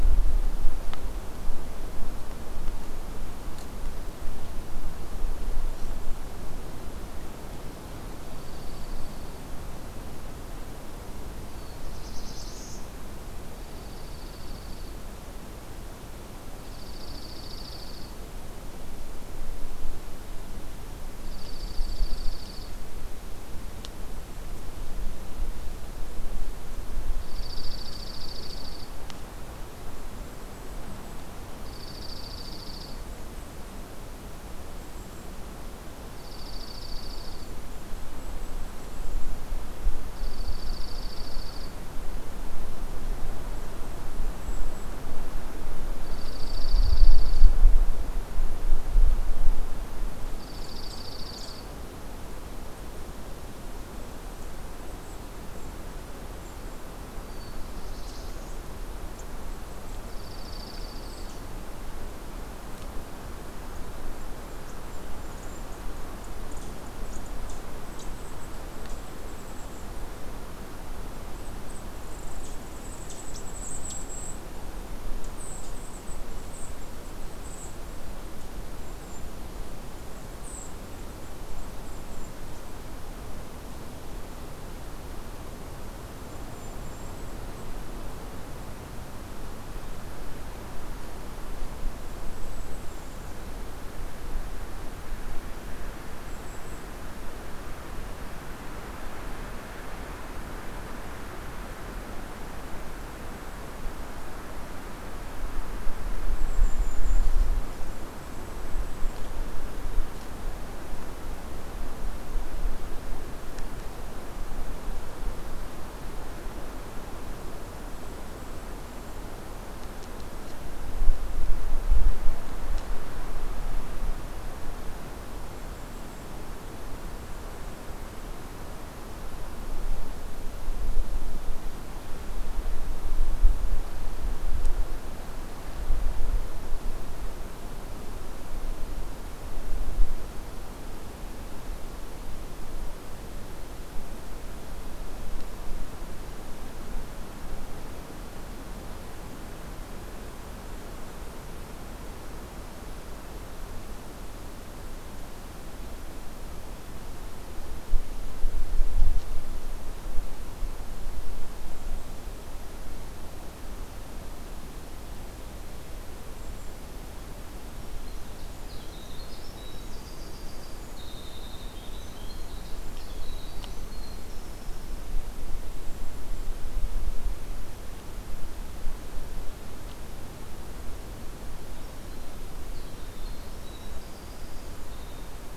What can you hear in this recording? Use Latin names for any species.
Junco hyemalis, Setophaga caerulescens, Setophaga fusca, Regulus satrapa, Troglodytes hiemalis